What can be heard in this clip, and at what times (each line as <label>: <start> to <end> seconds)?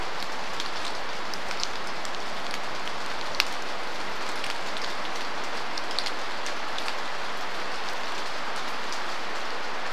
rain: 0 to 10 seconds